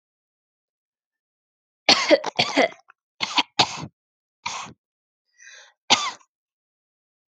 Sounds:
Cough